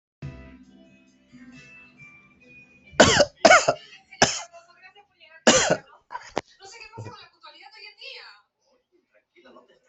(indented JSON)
{
  "expert_labels": [
    {
      "quality": "good",
      "cough_type": "dry",
      "dyspnea": false,
      "wheezing": false,
      "stridor": false,
      "choking": false,
      "congestion": false,
      "nothing": true,
      "diagnosis": "upper respiratory tract infection",
      "severity": "mild"
    }
  ],
  "age": 46,
  "gender": "male",
  "respiratory_condition": false,
  "fever_muscle_pain": false,
  "status": "COVID-19"
}